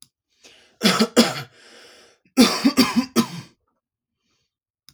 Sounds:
Cough